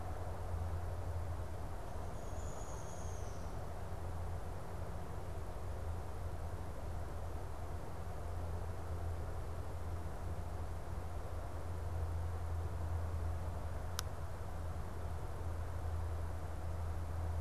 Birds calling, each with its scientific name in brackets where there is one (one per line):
Downy Woodpecker (Dryobates pubescens)